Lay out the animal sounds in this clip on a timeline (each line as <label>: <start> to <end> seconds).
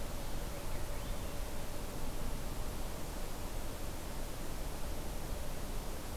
Swainson's Thrush (Catharus ustulatus): 0.0 to 1.4 seconds